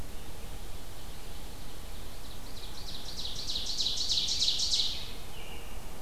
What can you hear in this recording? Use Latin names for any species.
Seiurus aurocapilla, Turdus migratorius